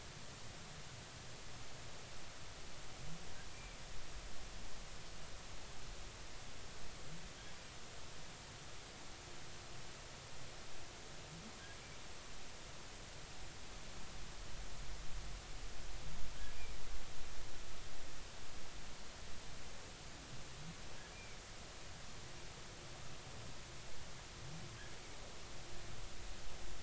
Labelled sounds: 3.5	3.8	humpback whale, 2.2 to 2.5 kHz
16.5	16.8	humpback whale, 2.2 to 2.5 kHz
21.1	21.4	humpback whale, 2.2 to 2.5 kHz

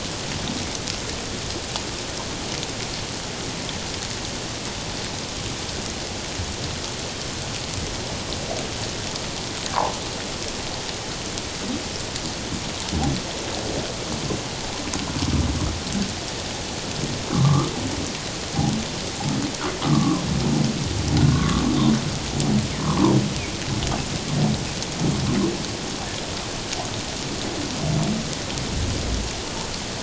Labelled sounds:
17.3	17.7	humpback whale, 1.0 to 1.4 kHz
19.8	20.2	humpback whale, 0.97 to 1.3 kHz
21.3	21.6	humpback whale, 1.0 to 1.4 kHz

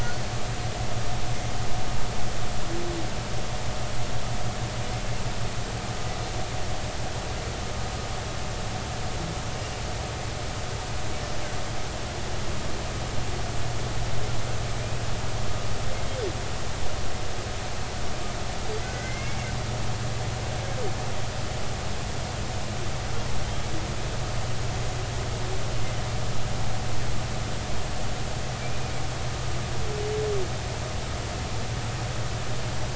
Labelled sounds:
15.9	16.2	humpback whale, 2.0 to 2.2 kHz
18.8	19.5	humpback whale, 1.5 to 2.3 kHz
28.6	28.9	humpback whale, 2.3 to 2.5 kHz

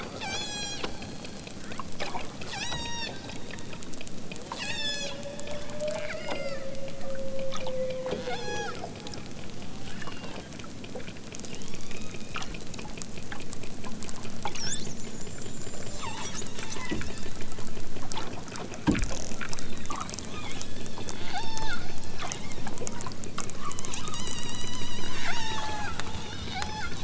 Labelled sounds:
0.2	0.9	killer whale, southern Alaska resident, 0.51 to 8.0 kHz
1.5	1.9	killer whale, southern Alaska resident, 0.88 to 3.7 kHz
2.4	3.2	killer whale, southern Alaska resident, 0.41 to 8.0 kHz
4.5	5.2	killer whale, southern Alaska resident, 0.74 to 8.0 kHz
6.0	6.7	killer whale, southern Alaska resident, 1.0 to 8.0 kHz
8.2	8.8	killer whale, southern Alaska resident, 1.2 to 8.0 kHz
9.8	10.5	killer whale, southern Alaska resident, 1.1 to 5.7 kHz
11.5	12.4	killer whale, southern Alaska resident, 0.64 to 7.2 kHz
16.5	17.4	killer whale, southern Alaska resident, 0.55 to 7.8 kHz
20.2	20.7	killer whale, southern Alaska resident, 1.0 to 8.0 kHz
21.3	22.3	killer whale, southern Alaska resident, 0.41 to 6.8 kHz
23.5	25.9	killer whale, southern Alaska resident, 0.51 to 8.0 kHz
26.4	27.0	killer whale, southern Alaska resident, 0.37 to 6.4 kHz

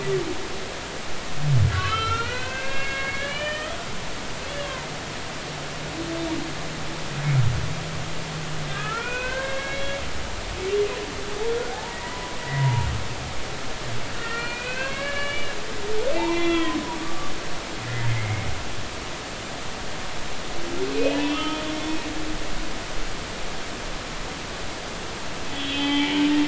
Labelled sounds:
1.7	3.7	humpback whale, 1.1 to 3.3 kHz
4.5	4.9	humpback whale, 0.90 to 3.5 kHz
8.7	10.0	humpback whale, 0.90 to 2.8 kHz
11.5	12.9	humpback whale, 0.80 to 2.1 kHz
14.2	15.6	humpback whale, 1.0 to 4.4 kHz
16.1	17.3	humpback whale, 0.80 to 3.5 kHz
18.1	18.5	humpback whale, 2.0 to 2.2 kHz
20.8	21.6	humpback whale, 1.1 to 3.1 kHz
25.5	26.3	humpback whale, 0.80 to 3.5 kHz

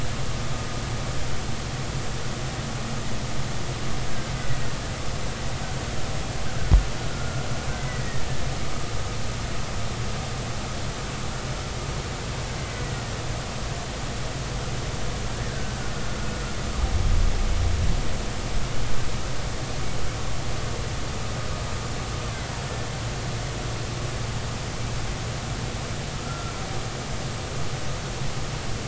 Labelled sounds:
4.1	4.3	killer whale, Bigg's (transient), 1.5 to 1.7 kHz
7.1	8.2	killer whale, Bigg's (transient), 1.3 to 2.1 kHz
12.6	13.2	killer whale, Bigg's (transient), 1.8 to 2.1 kHz
15.5	15.8	killer whale, Bigg's (transient), 1.5 to 1.7 kHz
26.1	26.5	killer whale, Bigg's (transient), 1.2 to 1.4 kHz

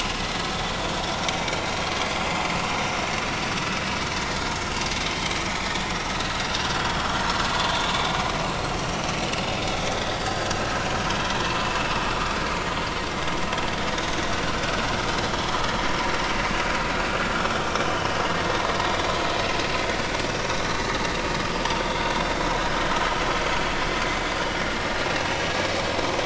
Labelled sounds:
5.0	5.3	vessel noise, 3.0 to 3.3 kHz
6.7	7.0	vessel noise, 3.2 to 3.4 kHz
9.9	10.7	vessel noise, 1.5 to 4.7 kHz
21.8	22.4	vessel noise, 3.3 to 3.7 kHz

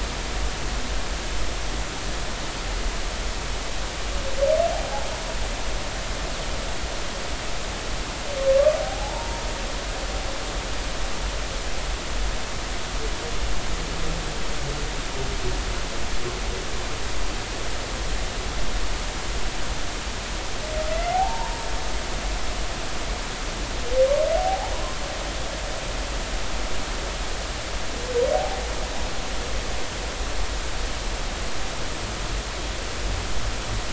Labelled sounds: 8.8	9.4	humpback whale, 0.80 to 0.99 kHz
21.0	21.7	humpback whale, 0.80 to 2.3 kHz
24.4	24.7	humpback whale, 0.80 to 0.96 kHz
28.3	28.6	humpback whale, 0.80 to 0.90 kHz

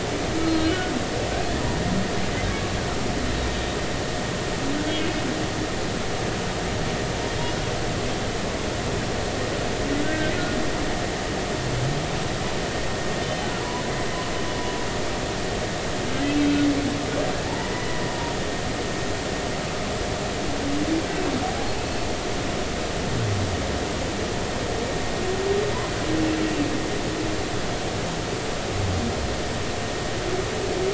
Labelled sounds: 0.5	0.9	humpback whale, 2.8 to 4.3 kHz
10.0	10.3	humpback whale, 1.5 to 1.6 kHz
13.2	13.5	humpback whale, 3.0 to 3.1 kHz
17.5	18.0	humpback whale, 0.83 to 2.0 kHz

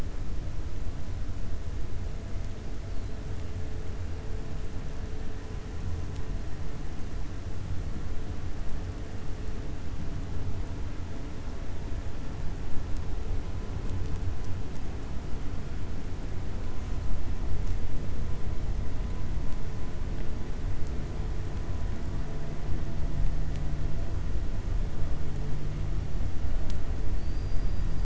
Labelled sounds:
27.1	27.8	killer whale, 3.8 to 4.8 kHz

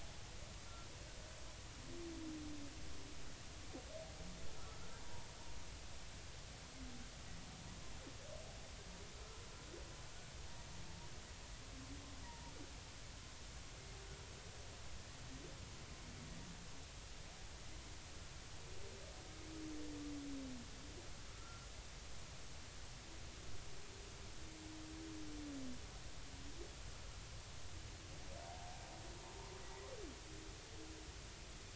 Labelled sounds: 4.9	5.3	humpback whale, 0.86 to 0.99 kHz
12.2	12.5	humpback whale, 0.86 to 0.99 kHz
21.3	21.6	humpback whale, 1.2 to 1.4 kHz

